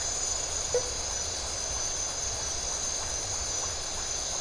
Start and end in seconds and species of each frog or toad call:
0.7	1.0	blacksmith tree frog
Brazil, ~midnight

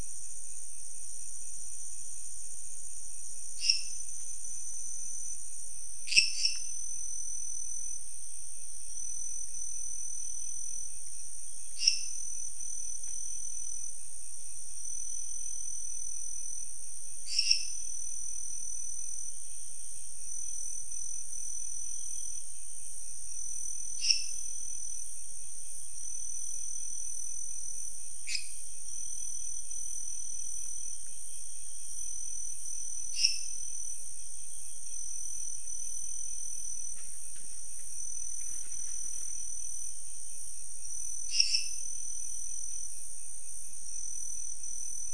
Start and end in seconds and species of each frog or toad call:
3.5	4.1	lesser tree frog
5.8	6.9	lesser tree frog
11.8	12.3	lesser tree frog
17.1	17.9	lesser tree frog
23.8	24.6	lesser tree frog
28.2	28.7	lesser tree frog
32.9	33.8	lesser tree frog
41.2	42.0	lesser tree frog
Brazil, ~1am

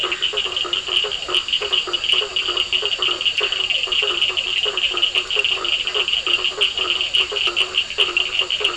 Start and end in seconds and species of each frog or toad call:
0.0	8.7	blacksmith tree frog
0.0	8.7	two-colored oval frog
0.0	8.7	Physalaemus cuvieri
0.0	8.7	Cochran's lime tree frog
3.3	3.7	Scinax perereca
Brazil, 9:30pm

